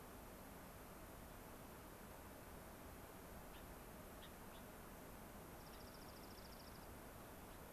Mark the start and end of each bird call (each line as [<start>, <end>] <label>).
[3.55, 3.65] Gray-crowned Rosy-Finch (Leucosticte tephrocotis)
[4.15, 4.65] Gray-crowned Rosy-Finch (Leucosticte tephrocotis)
[5.55, 6.85] Dark-eyed Junco (Junco hyemalis)
[5.65, 5.85] Gray-crowned Rosy-Finch (Leucosticte tephrocotis)